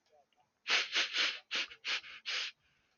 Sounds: Sniff